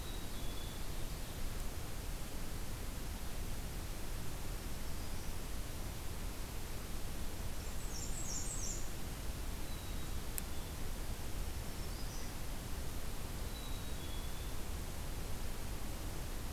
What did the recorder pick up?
Black-capped Chickadee, Ovenbird, Black-throated Green Warbler, Black-and-white Warbler